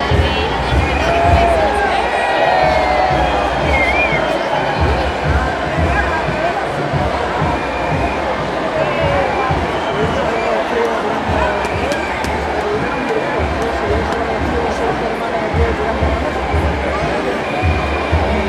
Is this a likely a sporting event?
yes